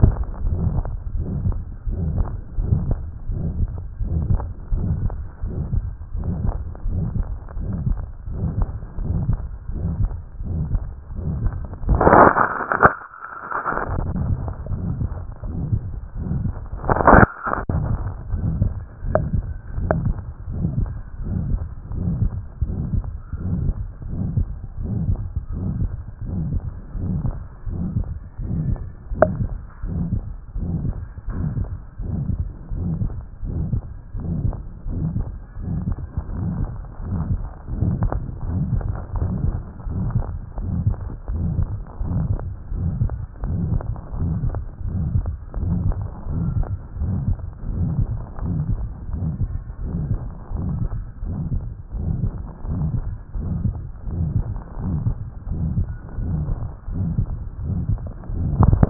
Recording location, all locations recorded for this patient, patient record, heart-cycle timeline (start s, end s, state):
tricuspid valve (TV)
aortic valve (AV)+pulmonary valve (PV)+tricuspid valve (TV)+mitral valve (MV)+other location
#Age: nan
#Sex: Male
#Height: 163.0 cm
#Weight: 73.0 kg
#Pregnancy status: False
#Murmur: Present
#Murmur locations: aortic valve (AV)+mitral valve (MV)+pulmonary valve (PV)+other location+tricuspid valve (TV)
#Most audible location: mitral valve (MV)
#Systolic murmur timing: Holosystolic
#Systolic murmur shape: Decrescendo
#Systolic murmur grading: III/VI or higher
#Systolic murmur pitch: Medium
#Systolic murmur quality: Harsh
#Diastolic murmur timing: nan
#Diastolic murmur shape: nan
#Diastolic murmur grading: nan
#Diastolic murmur pitch: nan
#Diastolic murmur quality: nan
#Outcome: Abnormal
#Campaign: 2014 screening campaign
0.16	0.58	diastole
0.58	0.74	S1
0.74	0.78	systole
0.78	0.90	S2
0.90	1.32	diastole
1.32	1.42	S1
1.42	1.44	systole
1.44	1.60	S2
1.60	2.00	diastole
2.00	2.14	S1
2.14	2.16	systole
2.16	2.28	S2
2.28	2.66	diastole
2.66	2.84	S1
2.84	2.90	systole
2.90	3.02	S2
3.02	3.38	diastole
3.38	3.52	S1
3.52	3.58	systole
3.58	3.72	S2
3.72	4.10	diastole
4.10	4.26	S1
4.26	4.28	systole
4.28	4.42	S2
4.42	4.80	diastole
4.80	4.98	S1
4.98	5.02	systole
5.02	5.18	S2
5.18	5.58	diastole
5.58	5.68	S1
5.68	5.74	systole
5.74	5.88	S2
5.88	6.24	diastole
6.24	6.38	S1
6.38	6.42	systole
6.42	6.54	S2
6.54	6.92	diastole
6.92	7.08	S1
7.08	7.14	systole
7.14	7.28	S2
7.28	7.68	diastole
7.68	7.80	S1
7.80	7.84	systole
7.84	7.98	S2
7.98	8.36	diastole
8.36	8.50	S1
8.50	8.56	systole
8.56	8.70	S2
8.70	9.06	diastole
9.06	9.22	S1
9.22	9.26	systole
9.26	9.42	S2
9.42	9.80	diastole
9.80	9.94	S1
9.94	9.96	systole
9.96	10.12	S2
10.12	10.52	diastole
10.52	10.68	S1
10.68	10.72	systole
10.72	10.86	S2
10.86	11.24	diastole
11.24	11.36	S1
11.36	11.42	systole
11.42	11.56	S2
11.56	11.90	diastole
11.90	12.02	S1
12.02	12.12	systole
12.12	12.28	S2
12.28	12.72	diastole
12.72	12.80	S1
12.80	12.84	systole
12.84	12.94	S2
12.94	13.44	diastole
13.44	13.54	S1
13.54	13.56	systole
13.56	13.64	S2
13.64	14.02	diastole
14.02	14.16	S1
14.16	14.24	systole
14.24	14.40	S2
14.40	14.84	diastole
14.84	14.98	S1
14.98	15.02	systole
15.02	15.16	S2
15.16	15.60	diastole
15.60	15.70	S1
15.70	15.74	systole
15.74	15.84	S2
15.84	16.28	diastole
16.28	16.42	S1
16.42	16.46	systole
16.46	16.58	S2
16.58	17.04	diastole
17.04	17.20	S1
17.20	17.22	systole
17.22	17.30	S2
17.30	17.74	diastole
17.74	17.92	S1
17.92	17.98	systole
17.98	18.08	S2
18.08	18.42	diastole
18.42	18.56	S1
18.56	18.60	systole
18.60	18.74	S2
18.74	19.14	diastole
19.14	19.28	S1
19.28	19.32	systole
19.32	19.46	S2
19.46	19.82	diastole
19.82	19.96	S1
19.96	20.04	systole
20.04	20.18	S2
20.18	20.58	diastole
20.58	20.72	S1
20.72	20.76	systole
20.76	20.90	S2
20.90	21.28	diastole
21.28	21.42	S1
21.42	21.48	systole
21.48	21.62	S2
21.62	22.02	diastole
22.02	22.18	S1
22.18	22.20	systole
22.20	22.34	S2
22.34	22.74	diastole
22.74	22.84	S1
22.84	22.90	systole
22.90	23.06	S2
23.06	23.46	diastole
23.46	23.62	S1
23.62	23.64	systole
23.64	23.78	S2
23.78	24.20	diastole
24.20	24.34	S1
24.34	24.38	systole
24.38	24.50	S2
24.50	24.90	diastole
24.90	25.06	S1
25.06	25.10	systole
25.10	25.24	S2
25.24	25.62	diastole
25.62	25.76	S1
25.76	25.78	systole
25.78	25.92	S2
25.92	26.32	diastole
26.32	26.46	S1
26.46	26.52	systole
26.52	26.64	S2
26.64	27.04	diastole
27.04	27.20	S1
27.20	27.26	systole
27.26	27.36	S2
27.36	27.80	diastole
27.80	27.92	S1
27.92	27.94	systole
27.94	28.08	S2
28.08	28.52	diastole
28.52	28.66	S1
28.66	28.68	systole
28.68	28.80	S2
28.80	29.22	diastole
29.22	29.36	S1
29.36	29.38	systole
29.38	29.52	S2
29.52	29.92	diastole
29.92	30.06	S1
30.06	30.10	systole
30.10	30.24	S2
30.24	30.66	diastole
30.66	30.80	S1
30.80	30.84	systole
30.84	30.96	S2
30.96	31.38	diastole
31.38	31.54	S1
31.54	31.58	systole
31.58	31.68	S2
31.68	32.10	diastole
32.10	32.26	S1
32.26	32.38	systole
32.38	32.50	S2
32.50	32.82	diastole
32.82	32.98	S1
32.98	33.00	systole
33.00	33.12	S2
33.12	33.54	diastole
33.54	33.68	S1
33.68	33.74	systole
33.74	33.86	S2
33.86	34.28	diastole
34.28	34.40	S1
34.40	34.46	systole
34.46	34.56	S2
34.56	34.98	diastole
34.98	35.12	S1
35.12	35.16	systole
35.16	35.28	S2
35.28	35.70	diastole
35.70	35.84	S1
35.84	35.86	systole
35.86	35.96	S2
35.96	36.40	diastole
36.40	36.54	S1
36.54	36.58	systole
36.58	36.70	S2
36.70	37.08	diastole
37.08	37.22	S1
37.22	37.30	systole
37.30	37.42	S2
37.42	37.80	diastole
37.80	37.98	S1
37.98	38.00	systole
38.00	38.12	S2
38.12	38.50	diastole
38.50	38.68	S1
38.68	38.72	systole
38.72	38.84	S2
38.84	39.16	diastole
39.16	39.32	S1
39.32	39.42	systole
39.42	39.58	S2
39.58	39.94	diastole
39.94	40.12	S1
40.12	40.14	systole
40.14	40.30	S2
40.30	40.68	diastole
40.68	40.82	S1
40.82	40.84	systole
40.84	40.98	S2
40.98	41.36	diastole
41.36	41.52	S1
41.52	41.56	systole
41.56	41.72	S2
41.72	42.08	diastole
42.08	42.26	S1
42.26	42.28	systole
42.28	42.42	S2
42.42	42.80	diastole
42.80	42.96	S1
42.96	42.98	systole
42.98	43.12	S2
43.12	43.52	diastole
43.52	43.70	S1
43.70	43.74	systole
43.74	43.88	S2
43.88	44.22	diastole
44.22	44.36	S1
44.36	44.42	systole
44.42	44.54	S2
44.54	44.94	diastole
44.94	45.08	S1
45.08	45.12	systole
45.12	45.28	S2
45.28	45.64	diastole
45.64	45.80	S1
45.80	45.84	systole
45.84	45.98	S2
45.98	46.30	diastole
46.30	46.46	S1
46.46	46.54	systole
46.54	46.68	S2
46.68	47.02	diastole
47.02	47.16	S1
47.16	47.22	systole
47.22	47.38	S2
47.38	47.76	diastole
47.76	47.92	S1
47.92	47.96	systole
47.96	48.10	S2
48.10	48.48	diastole
48.48	48.66	S1
48.66	48.70	systole
48.70	48.80	S2
48.80	49.20	diastole
49.20	49.34	S1
49.34	49.42	systole
49.42	49.52	S2
49.52	49.92	diastole
49.92	50.08	S1
50.08	50.10	systole
50.10	50.22	S2
50.22	50.64	diastole
50.64	50.76	S1
50.76	50.80	systole
50.80	50.94	S2
50.94	51.36	diastole
51.36	51.46	S1
51.46	51.50	systole
51.50	51.64	S2
51.64	52.02	diastole
52.02	52.18	S1
52.18	52.22	systole
52.22	52.36	S2
52.36	52.72	diastole
52.72	52.88	S1
52.88	52.92	systole
52.92	53.06	S2
53.06	53.48	diastole
53.48	53.62	S1
53.62	53.66	systole
53.66	53.76	S2
53.76	54.16	diastole
54.16	54.32	S1
54.32	54.34	systole
54.34	54.48	S2
54.48	54.86	diastole
54.86	55.02	S1
55.02	55.04	systole
55.04	55.18	S2
55.18	55.52	diastole
55.52	55.68	S1
55.68	55.74	systole
55.74	55.90	S2
55.90	56.30	diastole
56.30	56.46	S1
56.46	56.50	systole
56.50	56.60	S2
56.60	57.00	diastole
57.00	57.14	S1
57.14	57.16	systole
57.16	57.30	S2
57.30	57.68	diastole
57.68	57.84	S1
57.84	57.90	systole
57.90	58.06	S2
58.06	58.56	diastole
58.56	58.74	S1
58.74	58.76	systole
58.76	58.90	S2